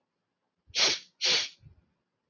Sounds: Sniff